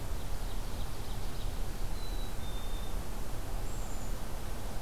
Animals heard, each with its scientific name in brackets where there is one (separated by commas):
Ovenbird (Seiurus aurocapilla), Black-capped Chickadee (Poecile atricapillus)